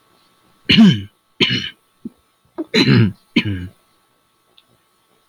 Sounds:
Throat clearing